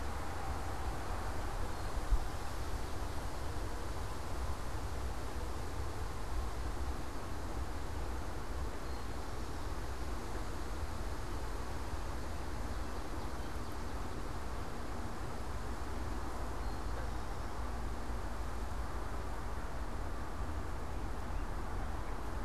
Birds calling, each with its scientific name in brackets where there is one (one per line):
Eastern Towhee (Pipilo erythrophthalmus)
Swamp Sparrow (Melospiza georgiana)